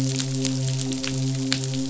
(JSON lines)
{"label": "biophony, midshipman", "recorder": "SoundTrap 500"}